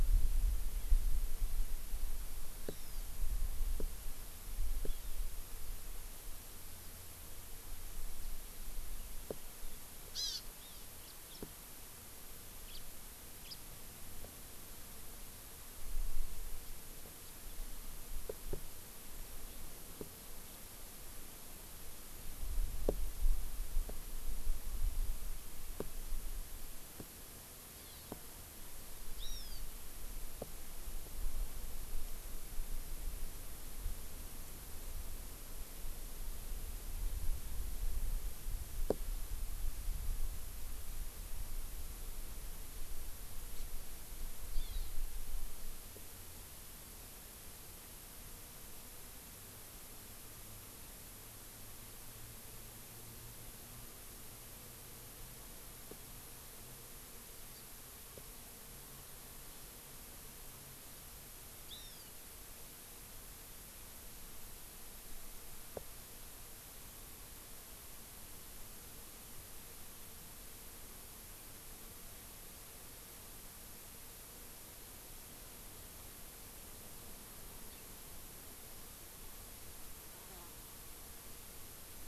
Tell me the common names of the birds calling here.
Hawaii Amakihi, House Finch